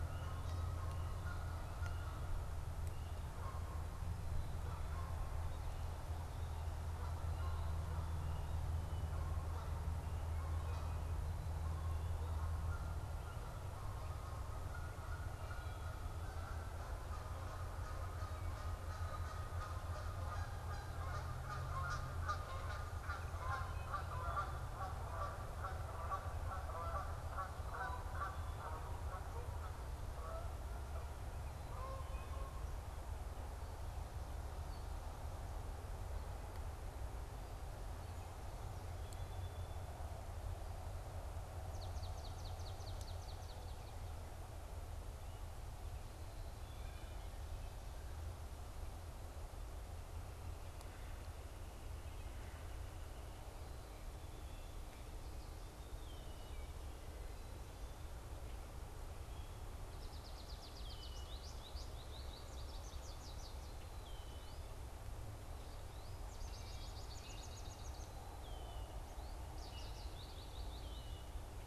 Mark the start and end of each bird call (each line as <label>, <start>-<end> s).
Canada Goose (Branta canadensis), 0.0-33.2 s
Song Sparrow (Melospiza melodia), 37.9-41.0 s
Swamp Sparrow (Melospiza georgiana), 41.2-44.3 s
Red-winged Blackbird (Agelaius phoeniceus), 55.7-56.9 s
American Goldfinch (Spinus tristis), 59.6-71.5 s
Red-winged Blackbird (Agelaius phoeniceus), 60.7-61.4 s
Red-winged Blackbird (Agelaius phoeniceus), 63.8-64.6 s
Red-winged Blackbird (Agelaius phoeniceus), 68.3-69.0 s
Red-winged Blackbird (Agelaius phoeniceus), 70.8-71.2 s